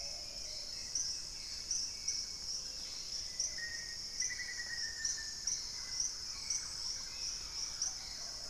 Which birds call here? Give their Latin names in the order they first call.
Formicarius analis, Turdus hauxwelli, Patagioenas plumbea, Pachyramphus marginatus, Pachysylvia hypoxantha, Campylorhynchus turdinus